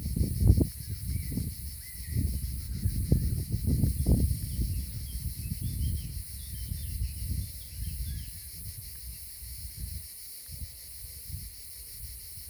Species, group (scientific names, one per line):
Cicadatra atra
Cicadidae